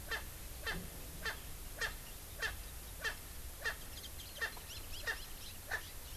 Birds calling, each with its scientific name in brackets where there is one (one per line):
Erckel's Francolin (Pternistis erckelii)